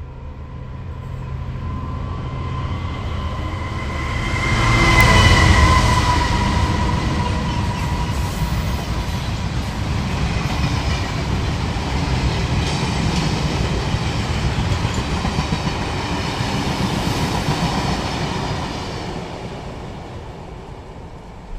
Is a vehicle passing by?
yes